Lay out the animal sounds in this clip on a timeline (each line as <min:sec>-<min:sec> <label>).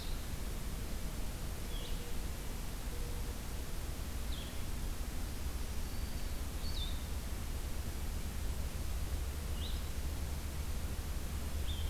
0:00.0-0:11.9 Blue-headed Vireo (Vireo solitarius)
0:05.2-0:06.4 Black-throated Green Warbler (Setophaga virens)